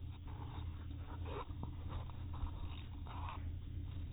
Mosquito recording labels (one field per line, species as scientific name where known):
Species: no mosquito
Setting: cup